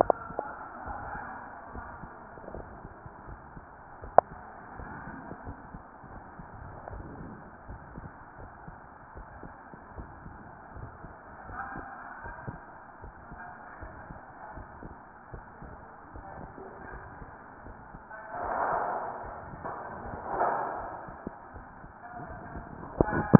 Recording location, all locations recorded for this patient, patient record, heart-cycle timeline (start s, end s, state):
aortic valve (AV)
aortic valve (AV)+pulmonary valve (PV)
#Age: Adolescent
#Sex: Female
#Height: 153.0 cm
#Weight: 52.5 kg
#Pregnancy status: False
#Murmur: Present
#Murmur locations: pulmonary valve (PV)
#Most audible location: pulmonary valve (PV)
#Systolic murmur timing: Holosystolic
#Systolic murmur shape: Plateau
#Systolic murmur grading: I/VI
#Systolic murmur pitch: Low
#Systolic murmur quality: Harsh
#Diastolic murmur timing: nan
#Diastolic murmur shape: nan
#Diastolic murmur grading: nan
#Diastolic murmur pitch: nan
#Diastolic murmur quality: nan
#Outcome: Abnormal
#Campaign: 2015 screening campaign
0.00	5.45	unannotated
5.45	5.58	S1
5.58	5.70	systole
5.70	5.81	S2
5.81	6.12	diastole
6.12	6.22	S1
6.22	6.34	systole
6.34	6.46	S2
6.46	6.92	diastole
6.92	7.06	S1
7.06	7.18	systole
7.18	7.30	S2
7.30	7.68	diastole
7.68	7.80	S1
7.80	7.90	systole
7.90	8.09	S2
8.09	8.40	diastole
8.40	8.50	S1
8.50	8.62	systole
8.62	8.74	S2
8.74	9.16	diastole
9.16	9.26	S1
9.26	9.34	systole
9.34	9.49	S2
9.49	9.95	diastole
9.95	10.10	S1
10.10	10.22	systole
10.22	10.34	S2
10.34	10.76	diastole
10.76	10.92	S1
10.92	11.02	systole
11.02	11.10	S2
11.10	11.50	diastole
11.50	11.64	S1
11.64	11.76	systole
11.76	11.84	S2
11.84	12.24	diastole
12.24	12.36	S1
12.36	12.46	systole
12.46	12.54	S2
12.54	13.01	diastole
13.01	13.14	S1
13.14	13.26	systole
13.26	13.38	S2
13.38	13.81	diastole
13.81	13.92	S1
13.92	23.39	unannotated